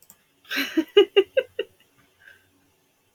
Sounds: Laughter